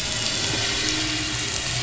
{"label": "anthrophony, boat engine", "recorder": "SoundTrap 500"}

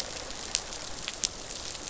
{"label": "biophony, rattle response", "recorder": "SoundTrap 500"}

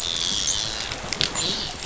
{"label": "biophony, dolphin", "recorder": "SoundTrap 500"}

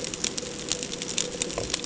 {"label": "ambient", "recorder": "HydroMoth"}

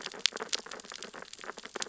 {"label": "biophony, sea urchins (Echinidae)", "recorder": "SoundTrap 600 or HydroMoth"}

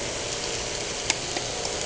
{"label": "anthrophony, boat engine", "recorder": "HydroMoth"}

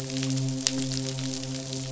{"label": "biophony, midshipman", "recorder": "SoundTrap 500"}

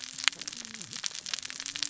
{"label": "biophony, cascading saw", "recorder": "SoundTrap 600 or HydroMoth"}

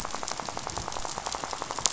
{"label": "biophony, rattle", "recorder": "SoundTrap 500"}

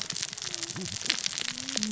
{"label": "biophony, cascading saw", "recorder": "SoundTrap 600 or HydroMoth"}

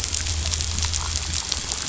{"label": "anthrophony, boat engine", "recorder": "SoundTrap 500"}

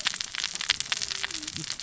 {"label": "biophony, cascading saw", "recorder": "SoundTrap 600 or HydroMoth"}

